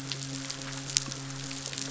{"label": "biophony, midshipman", "recorder": "SoundTrap 500"}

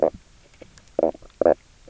{"label": "biophony, knock croak", "recorder": "SoundTrap 300"}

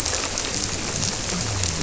{"label": "biophony", "recorder": "SoundTrap 300"}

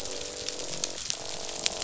{"label": "biophony, croak", "recorder": "SoundTrap 500"}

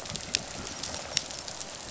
{"label": "biophony, rattle response", "recorder": "SoundTrap 500"}
{"label": "anthrophony, boat engine", "recorder": "SoundTrap 500"}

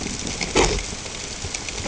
{"label": "ambient", "recorder": "HydroMoth"}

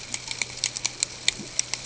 {"label": "ambient", "recorder": "HydroMoth"}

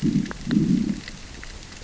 {"label": "biophony, growl", "recorder": "SoundTrap 600 or HydroMoth"}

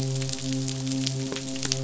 {"label": "biophony, midshipman", "recorder": "SoundTrap 500"}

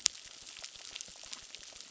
{"label": "biophony, crackle", "recorder": "SoundTrap 600"}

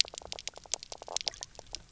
{"label": "biophony, knock croak", "recorder": "SoundTrap 300"}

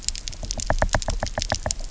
{"label": "biophony, knock", "recorder": "SoundTrap 300"}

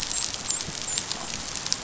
{"label": "biophony, dolphin", "recorder": "SoundTrap 500"}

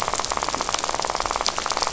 {"label": "biophony, rattle", "recorder": "SoundTrap 500"}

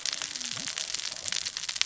{"label": "biophony, cascading saw", "recorder": "SoundTrap 600 or HydroMoth"}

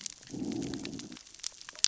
{"label": "biophony, growl", "recorder": "SoundTrap 600 or HydroMoth"}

